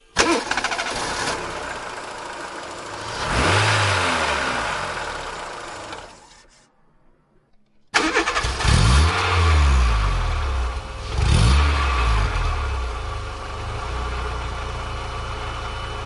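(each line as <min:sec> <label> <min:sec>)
0:00.1 Car engine starting and running. 0:02.0
0:02.6 A car engine revs loudly. 0:05.3
0:05.5 A car engine stops running. 0:06.6
0:07.9 A car engine starts. 0:10.8
0:11.1 Car engine revving on the street. 0:13.7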